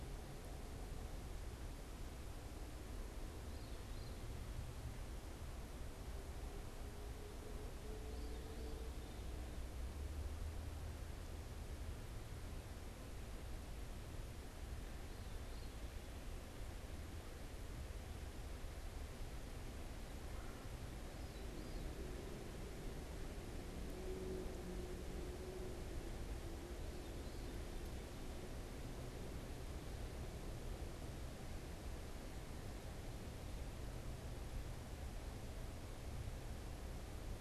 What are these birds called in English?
Veery, Red-bellied Woodpecker